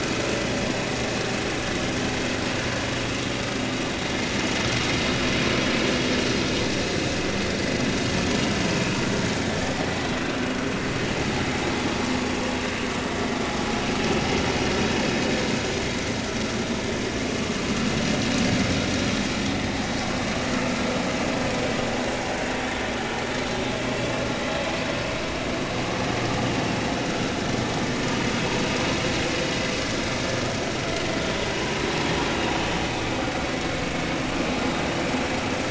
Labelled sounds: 27.1	27.3	vessel noise, 1.3 to 1.5 kHz

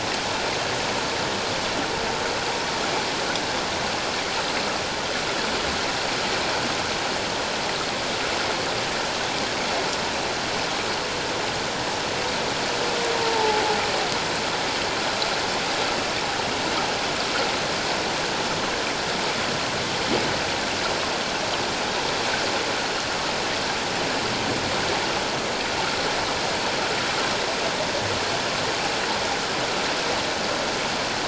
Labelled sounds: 13.2	13.6	humpback whale, 0.81 to 0.94 kHz

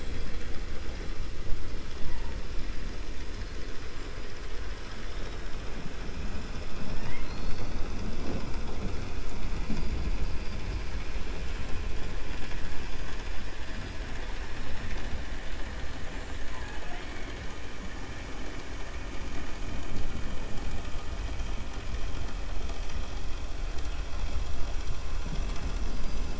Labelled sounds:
4.8	5.4	killer whale, 2.2 to 4.1 kHz

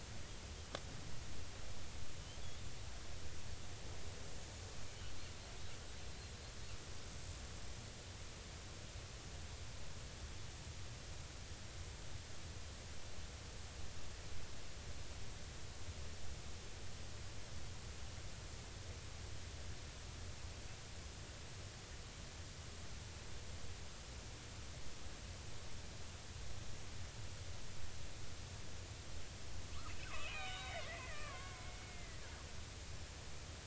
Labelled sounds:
30.0	32.2	killer whale, Bigg's (transient), 0.93 to 4.1 kHz

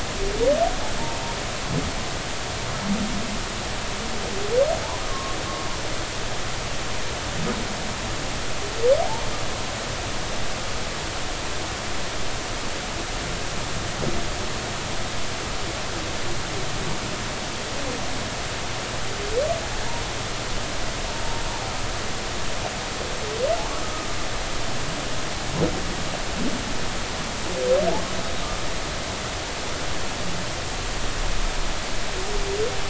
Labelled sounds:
5.1	5.3	humpback whale, 0.99 to 1.2 kHz

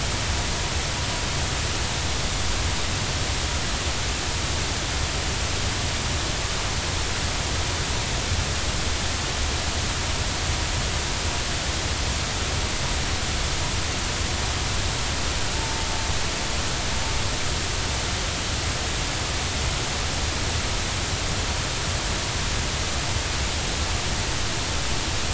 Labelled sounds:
15.5	15.9	vessel noise, 0.86 to 0.96 kHz

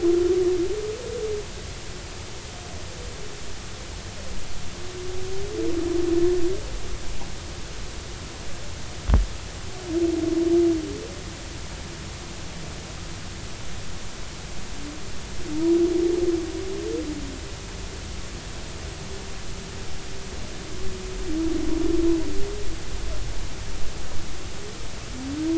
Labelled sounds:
15.5	15.8	humpback whale, 0.90 to 1.0 kHz

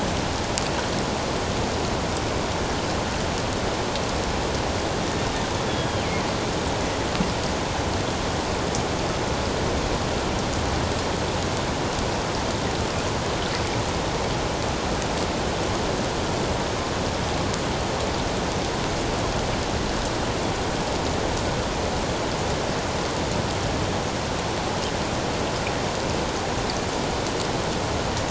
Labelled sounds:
5.7	6.0	killer whale, northern resident, G clan, 3.1 to 3.5 kHz

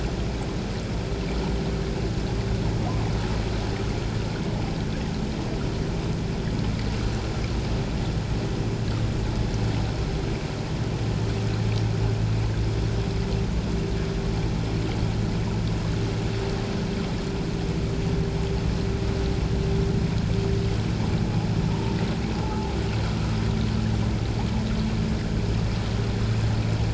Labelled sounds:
21.7	22.0	humpback whale, 0.88 to 1.0 kHz
22.4	22.7	humpback whale, 0.78 to 0.91 kHz

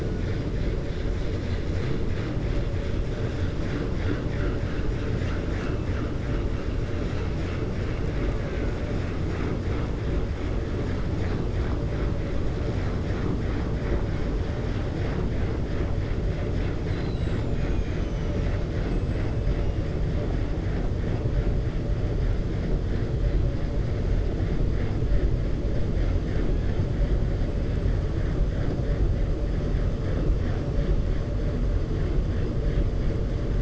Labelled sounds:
16.8	19.6	killer whale, 1.4 to 8.0 kHz

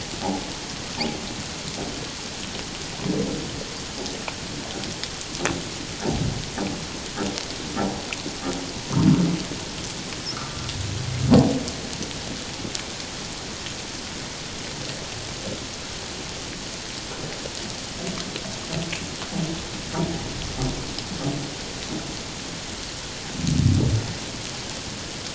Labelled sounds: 10.3	10.6	humpback whale, 1.2 to 1.5 kHz

